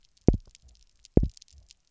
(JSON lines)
{"label": "biophony, double pulse", "recorder": "SoundTrap 300"}